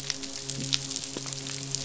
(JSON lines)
{"label": "biophony, midshipman", "recorder": "SoundTrap 500"}